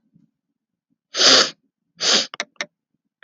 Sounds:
Sniff